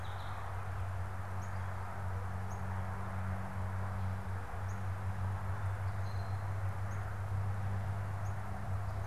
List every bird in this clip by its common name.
Northern Cardinal